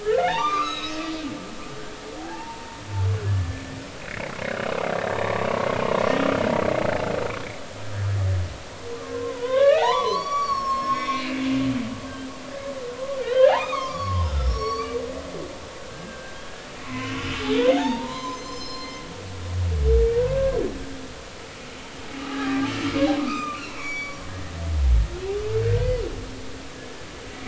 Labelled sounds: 0.0	1.1	humpback whale, 0.80 to 6.6 kHz
2.2	3.5	humpback whale, 0.80 to 1.8 kHz
4.0	4.3	humpback whale, 1.8 to 2.3 kHz
5.3	5.7	humpback whale, 0.90 to 1.2 kHz
9.0	11.3	humpback whale, 0.80 to 6.9 kHz
13.2	15.0	humpback whale, 0.83 to 6.0 kHz
15.8	17.2	humpback whale, 0.96 to 2.7 kHz
17.7	19.0	humpback whale, 0.80 to 6.3 kHz
20.3	20.6	humpback whale, 1.5 to 1.7 kHz
22.2	24.2	humpback whale, 0.80 to 6.9 kHz
25.6	25.9	humpback whale, 1.5 to 1.7 kHz

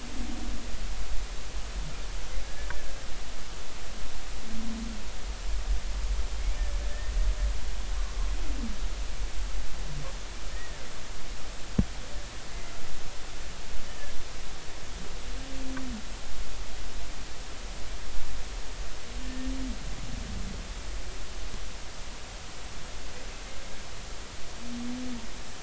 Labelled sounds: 2.4	3.0	humpback whale, 1.6 to 1.8 kHz
6.4	6.6	humpback whale, 2.1 to 2.4 kHz
10.5	10.8	humpback whale, 1.7 to 2.0 kHz
13.9	14.1	humpback whale, 1.6 to 1.9 kHz
19.2	19.5	humpback whale, 1.7 to 1.9 kHz

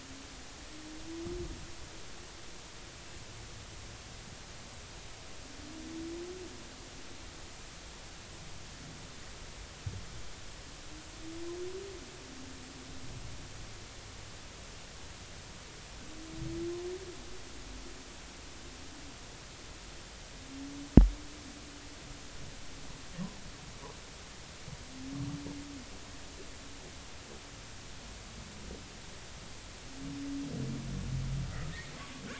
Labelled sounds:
32.0	32.2	humpback whale, 1.0 to 1.2 kHz

